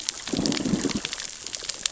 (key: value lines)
label: biophony, growl
recorder: SoundTrap 600 or HydroMoth